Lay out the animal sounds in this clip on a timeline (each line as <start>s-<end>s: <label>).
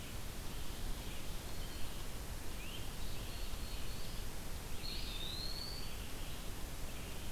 0.0s-7.3s: Red-eyed Vireo (Vireo olivaceus)
2.5s-2.9s: Great Crested Flycatcher (Myiarchus crinitus)
2.8s-4.3s: Black-throated Blue Warbler (Setophaga caerulescens)
4.6s-5.9s: Eastern Wood-Pewee (Contopus virens)